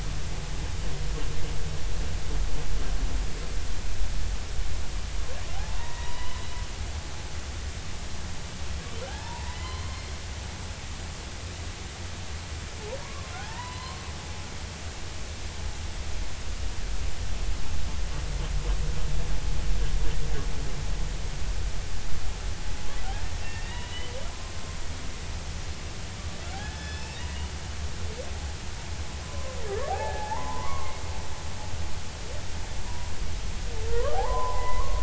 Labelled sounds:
5.7	6.4	humpback whale, 0.90 to 3.1 kHz
9.1	10.1	humpback whale, 0.80 to 4.3 kHz
13.0	14.0	humpback whale, 0.80 to 4.4 kHz
23.7	24.1	humpback whale, 1.9 to 3.1 kHz
26.4	27.5	humpback whale, 0.90 to 5.4 kHz
29.2	30.9	humpback whale, 0.80 to 1.8 kHz
32.9	33.1	humpback whale, 0.93 to 1.0 kHz
33.9	35.0	humpback whale, 0.80 to 2.1 kHz

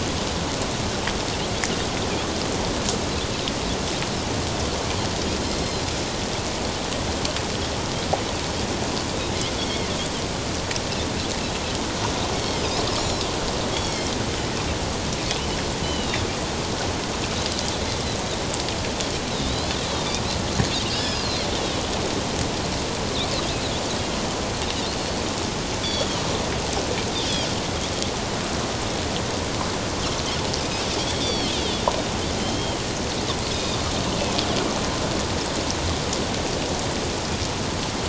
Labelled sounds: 5.4	5.8	Pacific white-sided dolphin, 4.0 to 4.2 kHz
9.6	9.9	Pacific white-sided dolphin, 3.1 to 3.6 kHz
12.3	13.2	Pacific white-sided dolphin, 2.1 to 5.7 kHz
15.8	16.3	Pacific white-sided dolphin, 2.7 to 4.1 kHz
19.3	20.2	Pacific white-sided dolphin, 3.4 to 4.4 kHz
20.9	21.5	Pacific white-sided dolphin, 1.5 to 5.3 kHz
24.9	25.2	Pacific white-sided dolphin, 4.1 to 4.5 kHz
25.8	26.2	Pacific white-sided dolphin, 2.9 to 4.7 kHz
31.0	32.8	Pacific white-sided dolphin, 2.8 to 5.9 kHz
33.5	33.8	Pacific white-sided dolphin, 3.6 to 5.2 kHz

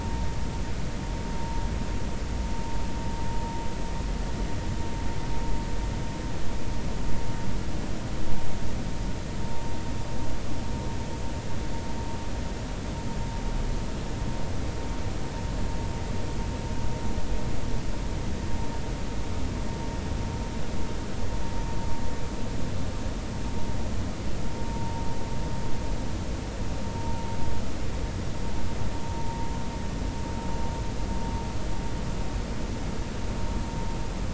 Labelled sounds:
24.6	25.1	vessel noise, 0.90 to 0.96 kHz
29.0	29.4	vessel noise, 0.86 to 0.96 kHz

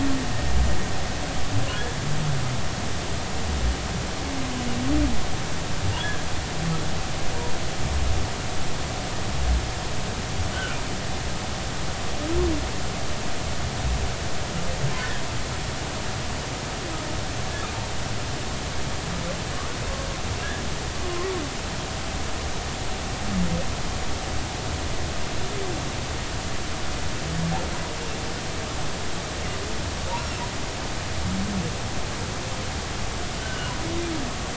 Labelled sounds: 6.0	6.2	humpback whale, 1.6 to 1.8 kHz
10.5	10.8	humpback whale, 1.3 to 1.6 kHz
33.4	33.7	humpback whale, 1.4 to 1.6 kHz

